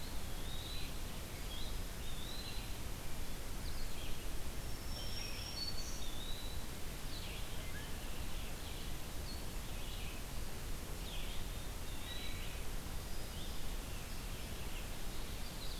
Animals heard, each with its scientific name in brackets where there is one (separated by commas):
Eastern Wood-Pewee (Contopus virens), Black-throated Green Warbler (Setophaga virens), Red-eyed Vireo (Vireo olivaceus), Wood Thrush (Hylocichla mustelina)